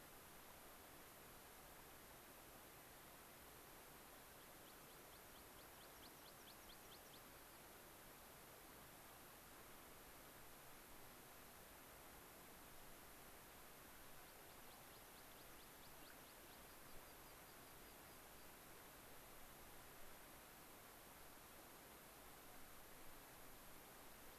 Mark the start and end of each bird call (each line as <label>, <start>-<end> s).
American Pipit (Anthus rubescens), 4.4-7.4 s
American Pipit (Anthus rubescens), 14.2-18.7 s